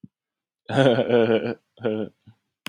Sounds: Laughter